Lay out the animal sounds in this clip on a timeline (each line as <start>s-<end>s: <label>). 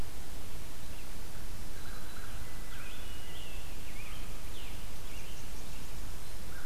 1.6s-3.0s: American Crow (Corvus brachyrhynchos)
1.6s-2.4s: Black-throated Green Warbler (Setophaga virens)
2.3s-3.5s: Hermit Thrush (Catharus guttatus)
2.5s-5.4s: Scarlet Tanager (Piranga olivacea)
4.6s-6.4s: Blackburnian Warbler (Setophaga fusca)
5.6s-6.7s: Red-eyed Vireo (Vireo olivaceus)